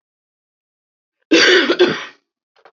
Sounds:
Cough